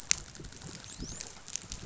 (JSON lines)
{"label": "biophony, dolphin", "recorder": "SoundTrap 500"}